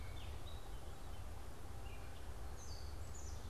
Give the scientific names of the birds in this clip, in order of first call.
Poecile atricapillus, Dumetella carolinensis